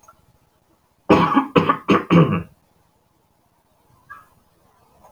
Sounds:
Throat clearing